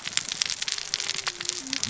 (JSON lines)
{"label": "biophony, cascading saw", "recorder": "SoundTrap 600 or HydroMoth"}